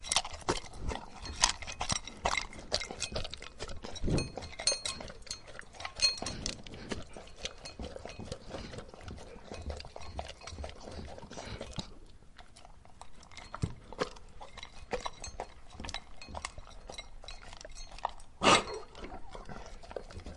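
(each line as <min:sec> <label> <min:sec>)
0:00.0 A dog chews food loudly and repeatedly indoors. 0:20.4
0:00.9 Soft, quiet, rapid, repetitive breathing. 0:12.3
0:01.4 A dog's collar repeatedly hitting a bowl with a loud, metallic sound. 0:08.6
0:09.7 A soft, repetitive metallic ringing of a dog's collar hitting a bowl. 0:12.3
0:13.6 A soft, repetitive metallic ringing of a dog's collar hitting a bowl. 0:18.9
0:18.4 Loud, sharp, pulsing breathing of a dog fading away. 0:20.0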